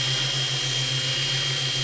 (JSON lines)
{"label": "anthrophony, boat engine", "recorder": "SoundTrap 500"}